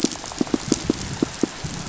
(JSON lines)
{"label": "biophony, pulse", "recorder": "SoundTrap 500"}